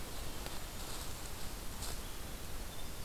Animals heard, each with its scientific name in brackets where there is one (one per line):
Winter Wren (Troglodytes hiemalis)